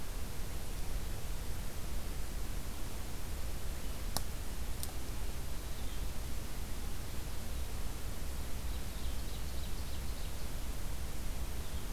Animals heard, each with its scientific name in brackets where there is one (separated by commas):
Ovenbird (Seiurus aurocapilla)